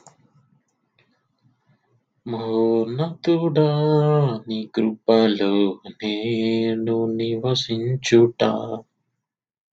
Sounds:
Sigh